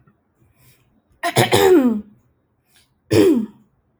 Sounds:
Throat clearing